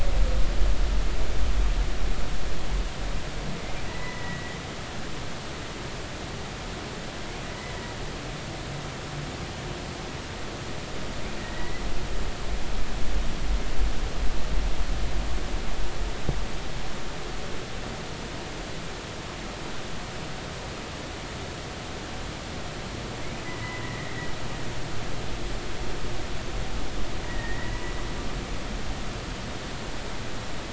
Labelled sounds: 3.9	4.6	humpback whale, 1.8 to 2.0 kHz
11.4	11.8	humpback whale, 1.8 to 2.1 kHz
23.4	24.2	humpback whale, 1.8 to 2.1 kHz
27.2	27.7	humpback whale, 1.8 to 2.0 kHz

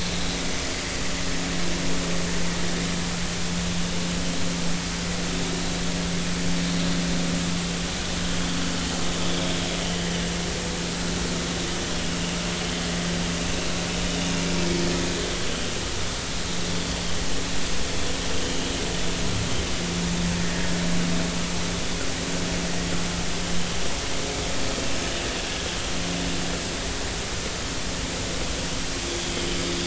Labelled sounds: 18.4	18.7	vessel noise, 2.7 to 3.2 kHz
20.4	20.6	vessel noise, 1.8 to 1.9 kHz

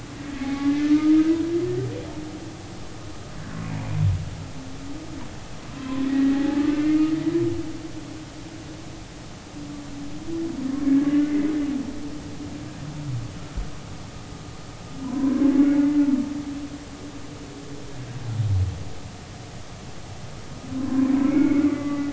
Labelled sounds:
0.4	1.1	humpback whale, 0.80 to 2.3 kHz
5.8	7.0	humpback whale, 0.80 to 2.2 kHz
11.1	11.5	humpback whale, 1.9 to 2.1 kHz
15.0	15.4	humpback whale, 0.93 to 1.2 kHz
20.8	22.1	humpback whale, 0.96 to 2.4 kHz

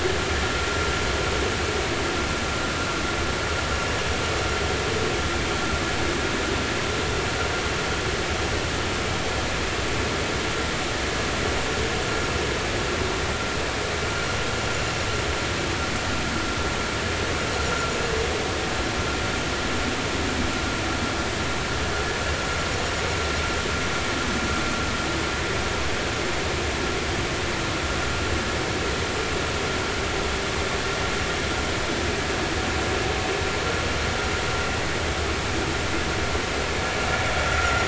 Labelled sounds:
37.6	37.8	vessel noise, 1.3 to 1.5 kHz

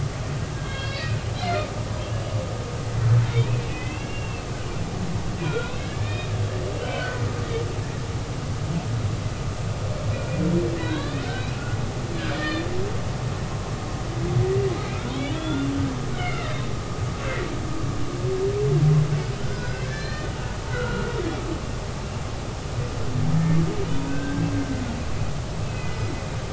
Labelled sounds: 0.5	1.7	humpback whale, 1.6 to 5.2 kHz
3.2	4.5	humpback whale, 1.9 to 3.8 kHz
5.5	6.3	humpback whale, 1.3 to 3.9 kHz
6.8	7.3	humpback whale, 1.4 to 3.2 kHz
10.8	11.7	humpback whale, 1.4 to 4.1 kHz
12.2	12.7	humpback whale, 1.7 to 5.0 kHz
15.1	15.7	humpback whale, 1.3 to 3.6 kHz
16.1	16.5	humpback whale, 1.8 to 3.1 kHz
19.4	21.1	humpback whale, 0.93 to 5.1 kHz
24.1	24.5	humpback whale, 1.5 to 1.7 kHz
25.6	26.0	humpback whale, 2.0 to 2.7 kHz

